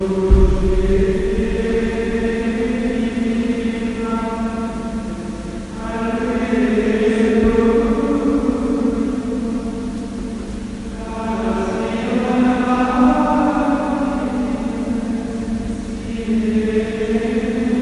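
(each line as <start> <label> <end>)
0.0 Gregorian chant being sung with reverb. 10.0
11.0 Gregorian chant being sung with reverb. 17.8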